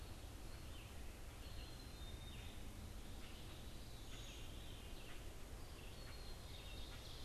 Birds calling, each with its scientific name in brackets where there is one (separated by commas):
Ovenbird (Seiurus aurocapilla), Veery (Catharus fuscescens), Red-eyed Vireo (Vireo olivaceus), Black-capped Chickadee (Poecile atricapillus), Common Grackle (Quiscalus quiscula)